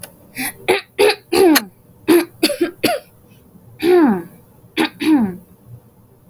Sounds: Throat clearing